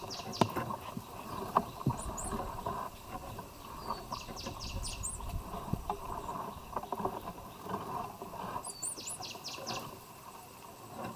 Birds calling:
White-eyed Slaty-Flycatcher (Melaenornis fischeri), Cinnamon Bracken-Warbler (Bradypterus cinnamomeus)

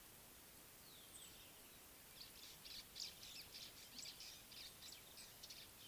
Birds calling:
White-browed Sparrow-Weaver (Plocepasser mahali)

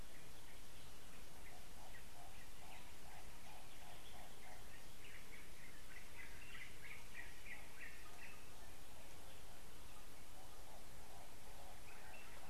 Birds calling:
Hartlaub's Turaco (Tauraco hartlaubi), Yellow-whiskered Greenbul (Eurillas latirostris)

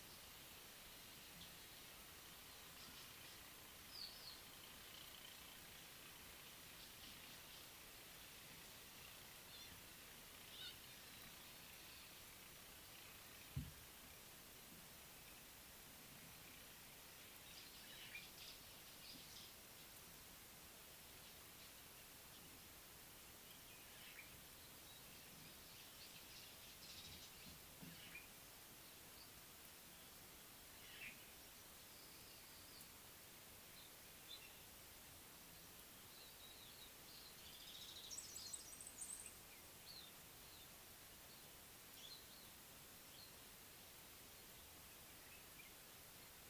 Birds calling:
Mocking Cliff-Chat (Thamnolaea cinnamomeiventris), Gray-backed Camaroptera (Camaroptera brevicaudata), Mariqua Sunbird (Cinnyris mariquensis)

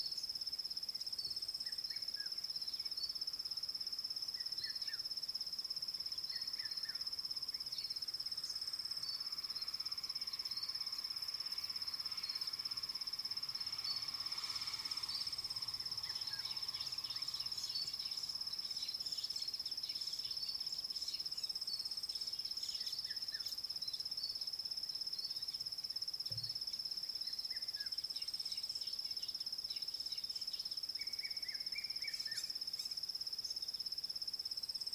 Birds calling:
Vitelline Masked-Weaver (Ploceus vitellinus), Red-chested Cuckoo (Cuculus solitarius), Fork-tailed Drongo (Dicrurus adsimilis)

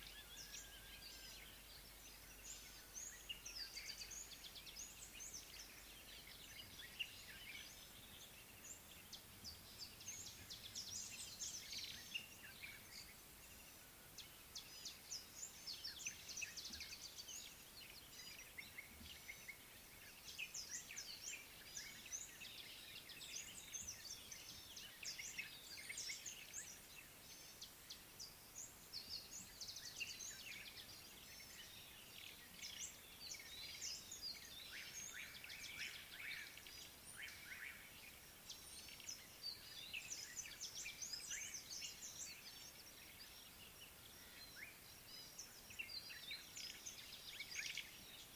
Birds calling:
White-browed Sparrow-Weaver (Plocepasser mahali), Slate-colored Boubou (Laniarius funebris), Amethyst Sunbird (Chalcomitra amethystina)

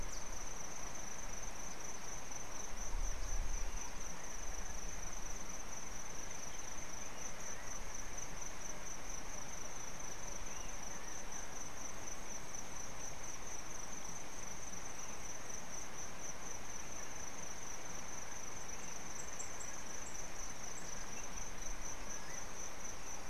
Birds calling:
Yellow Bishop (Euplectes capensis)

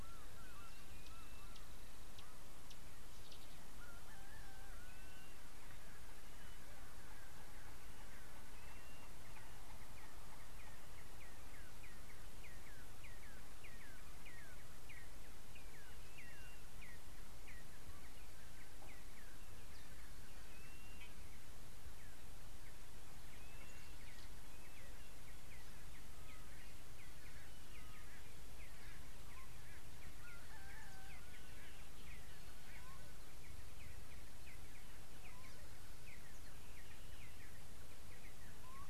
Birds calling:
Blue-naped Mousebird (Urocolius macrourus), Red-and-yellow Barbet (Trachyphonus erythrocephalus)

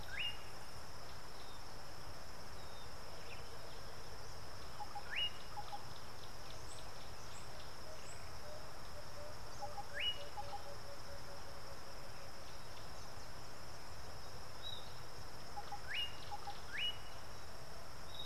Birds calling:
Emerald-spotted Wood-Dove (Turtur chalcospilos), Slate-colored Boubou (Laniarius funebris)

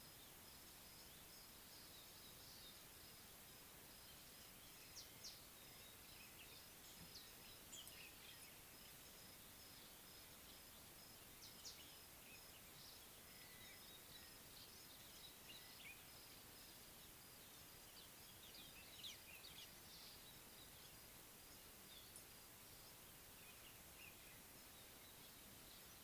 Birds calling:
Collared Sunbird (Hedydipna collaris), Pale White-eye (Zosterops flavilateralis)

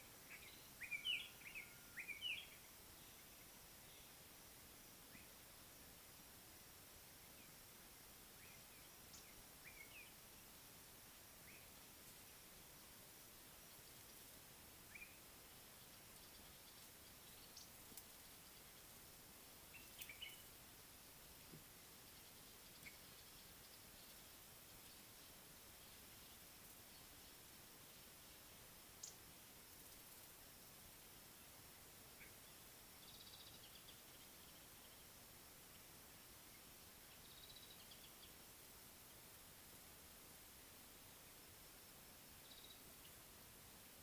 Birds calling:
Common Bulbul (Pycnonotus barbatus), White-browed Robin-Chat (Cossypha heuglini), Mariqua Sunbird (Cinnyris mariquensis), Slate-colored Boubou (Laniarius funebris), Red-faced Crombec (Sylvietta whytii)

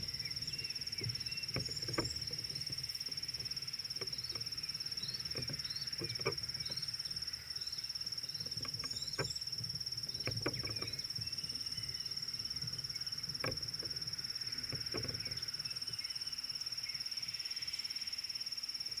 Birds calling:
Red-cheeked Cordonbleu (Uraeginthus bengalus), Pale White-eye (Zosterops flavilateralis)

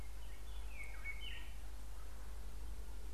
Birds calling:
White-browed Robin-Chat (Cossypha heuglini)

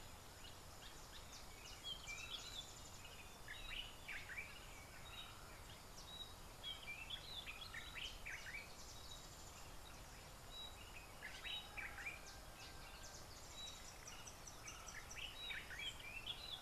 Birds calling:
Yellow Bishop (Euplectes capensis)

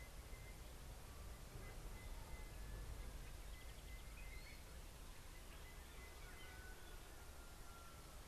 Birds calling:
Sulphur-breasted Bushshrike (Telophorus sulfureopectus)

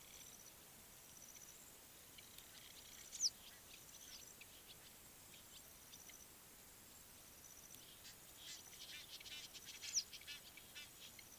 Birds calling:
Egyptian Goose (Alopochen aegyptiaca), Western Yellow Wagtail (Motacilla flava)

